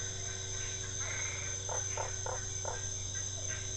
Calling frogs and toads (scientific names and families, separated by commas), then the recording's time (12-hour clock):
Boana albopunctata (Hylidae), Boana lundii (Hylidae)
7:00pm